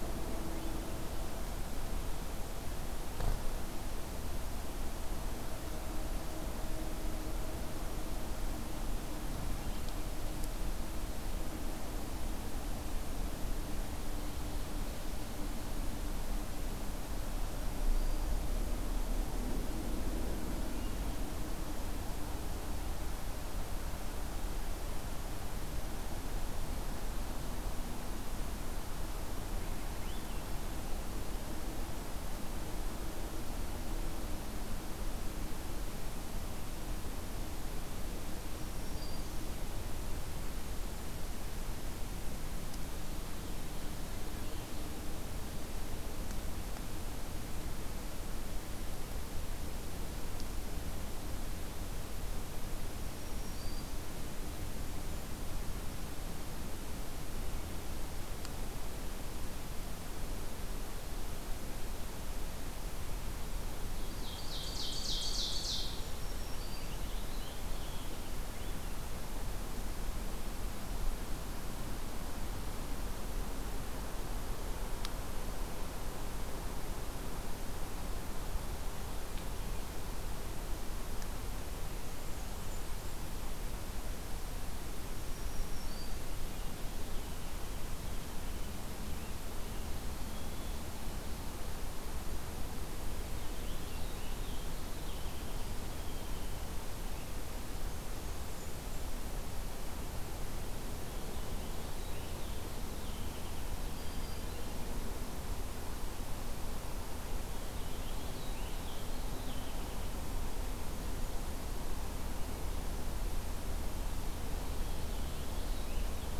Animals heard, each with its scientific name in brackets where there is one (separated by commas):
Golden-crowned Kinglet (Regulus satrapa), Ovenbird (Seiurus aurocapilla), Swainson's Thrush (Catharus ustulatus), Purple Finch (Haemorhous purpureus), Black-throated Green Warbler (Setophaga virens)